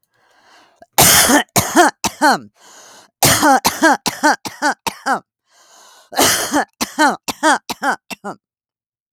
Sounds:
Cough